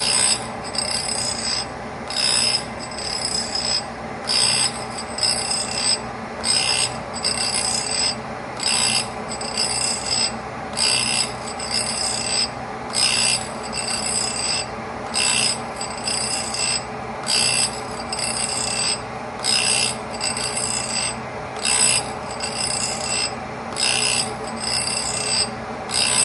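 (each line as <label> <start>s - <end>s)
Mechanical industrial machinery, possibly grinding or sharpening metal, producing regular and repeating sounds at a mild loudness. 0.0s - 26.2s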